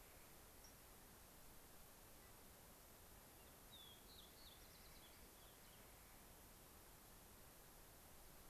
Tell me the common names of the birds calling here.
Fox Sparrow, unidentified bird